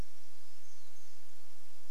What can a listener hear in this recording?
warbler song